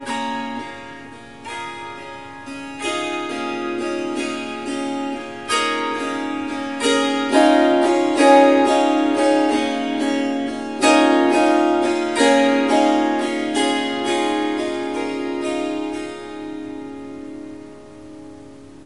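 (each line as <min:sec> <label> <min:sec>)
0:00.0 Someone is playing a melody on the harp. 0:18.9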